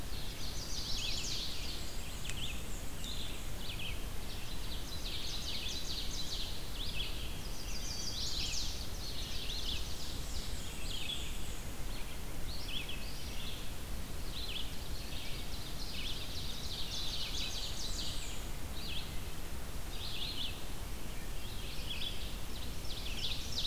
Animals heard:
Black-and-white Warbler (Mniotilta varia), Red-eyed Vireo (Vireo olivaceus), Hermit Thrush (Catharus guttatus), Ovenbird (Seiurus aurocapilla), Chestnut-sided Warbler (Setophaga pensylvanica)

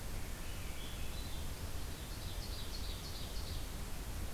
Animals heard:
Swainson's Thrush (Catharus ustulatus), Ovenbird (Seiurus aurocapilla)

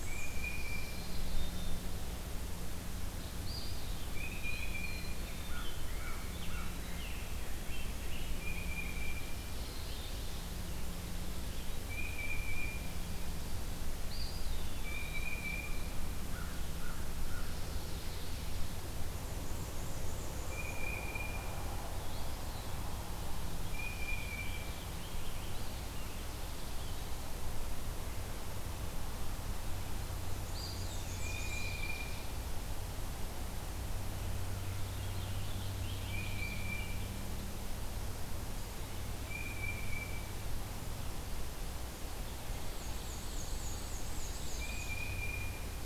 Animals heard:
Black-and-white Warbler (Mniotilta varia), Tufted Titmouse (Baeolophus bicolor), Scarlet Tanager (Piranga olivacea), American Crow (Corvus brachyrhynchos), Eastern Wood-Pewee (Contopus virens), Black-capped Chickadee (Poecile atricapillus)

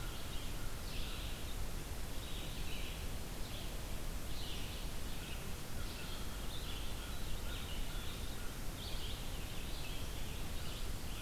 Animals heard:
American Crow (Corvus brachyrhynchos), Red-eyed Vireo (Vireo olivaceus)

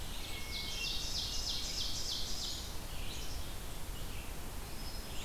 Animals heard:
Ovenbird (Seiurus aurocapilla), Black-capped Chickadee (Poecile atricapillus), Hermit Thrush (Catharus guttatus), Red-eyed Vireo (Vireo olivaceus)

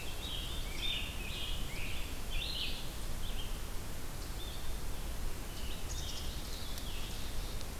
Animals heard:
Scarlet Tanager (Piranga olivacea), Red-eyed Vireo (Vireo olivaceus), Black-capped Chickadee (Poecile atricapillus)

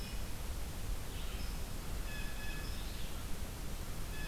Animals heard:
Blue Jay (Cyanocitta cristata), unknown mammal, Red-eyed Vireo (Vireo olivaceus)

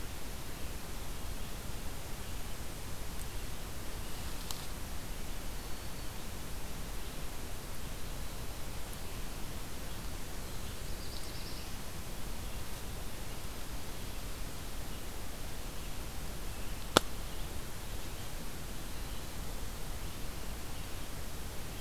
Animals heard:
Red-eyed Vireo (Vireo olivaceus), Black-throated Green Warbler (Setophaga virens), Black-throated Blue Warbler (Setophaga caerulescens)

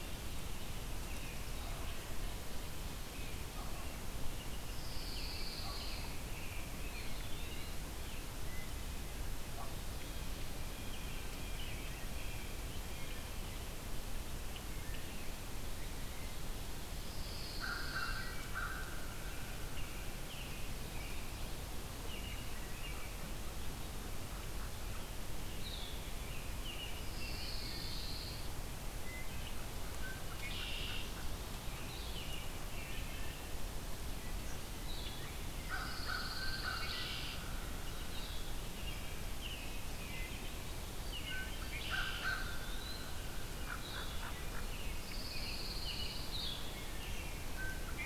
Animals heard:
Red-winged Blackbird (Agelaius phoeniceus), Wood Thrush (Hylocichla mustelina), Pine Warbler (Setophaga pinus), Hooded Merganser (Lophodytes cucullatus), Eastern Wood-Pewee (Contopus virens), Blue-headed Vireo (Vireo solitarius), Blue Jay (Cyanocitta cristata), American Robin (Turdus migratorius), American Crow (Corvus brachyrhynchos)

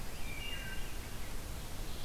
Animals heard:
Wood Thrush (Hylocichla mustelina), Rose-breasted Grosbeak (Pheucticus ludovicianus)

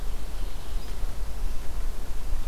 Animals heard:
Mourning Warbler (Geothlypis philadelphia)

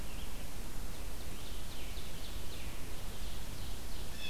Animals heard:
Ovenbird (Seiurus aurocapilla), Scarlet Tanager (Piranga olivacea)

